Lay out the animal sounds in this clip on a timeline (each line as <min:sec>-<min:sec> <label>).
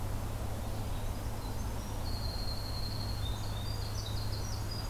0:00.0-0:04.9 Red-eyed Vireo (Vireo olivaceus)
0:00.9-0:04.9 Winter Wren (Troglodytes hiemalis)